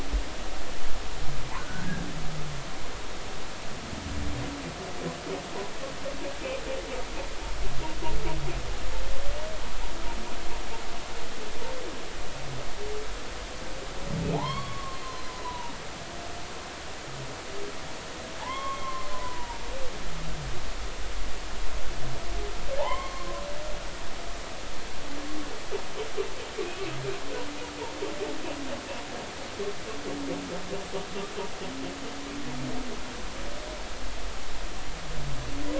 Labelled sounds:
1.6	1.9	humpback whale, 1.4 to 1.6 kHz
14.3	15.7	humpback whale, 0.80 to 4.5 kHz
18.4	19.6	humpback whale, 0.80 to 3.4 kHz
22.8	23.3	humpback whale, 0.80 to 2.2 kHz

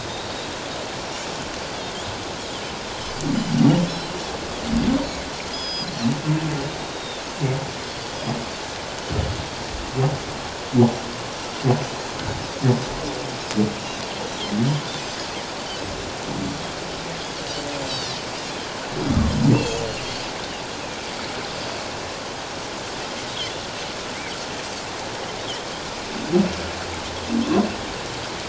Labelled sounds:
5.5	5.9	Pacific white-sided dolphin, 3.2 to 5.1 kHz
6.9	7.2	Pacific white-sided dolphin, 3.4 to 3.8 kHz
17.8	18.2	Pacific white-sided dolphin, 3.5 to 4.8 kHz
19.5	19.9	Pacific white-sided dolphin, 2.5 to 7.5 kHz

